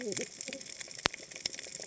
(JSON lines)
{"label": "biophony, cascading saw", "recorder": "HydroMoth"}